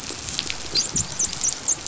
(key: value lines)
label: biophony, dolphin
recorder: SoundTrap 500